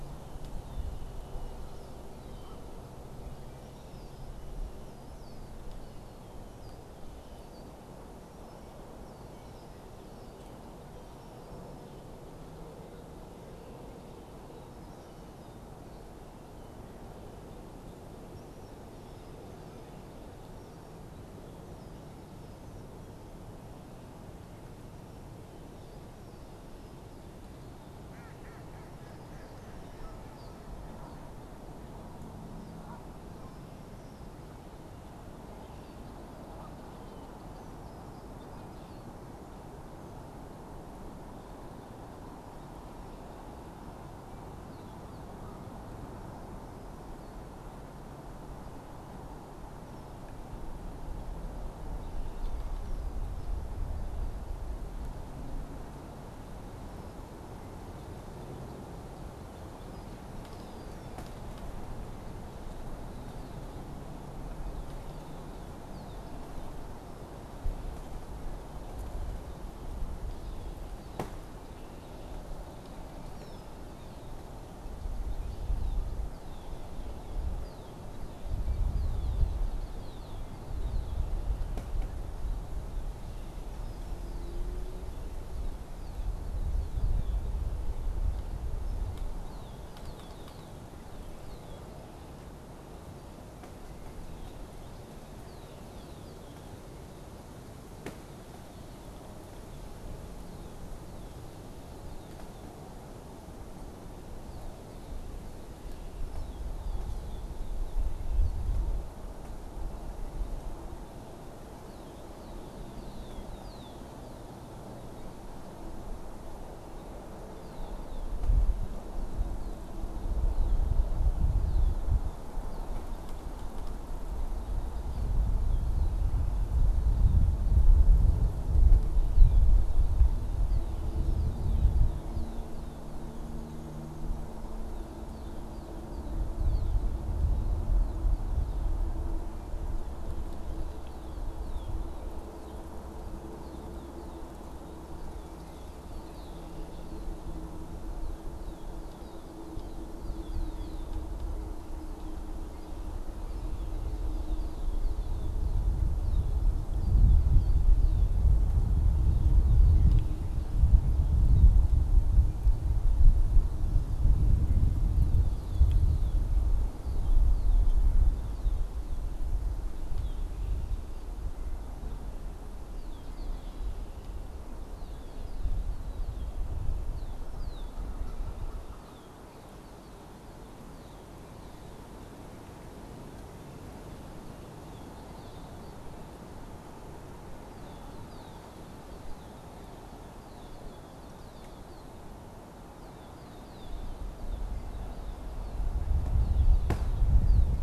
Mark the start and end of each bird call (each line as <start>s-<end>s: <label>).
0.0s-5.5s: Red-winged Blackbird (Agelaius phoeniceus)
27.9s-31.4s: Mallard (Anas platyrhynchos)
59.5s-108.8s: Red-winged Blackbird (Agelaius phoeniceus)
111.7s-161.8s: Red-winged Blackbird (Agelaius phoeniceus)
164.8s-168.1s: Red-winged Blackbird (Agelaius phoeniceus)
168.3s-197.8s: Red-winged Blackbird (Agelaius phoeniceus)